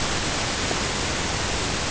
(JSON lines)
{"label": "ambient", "recorder": "HydroMoth"}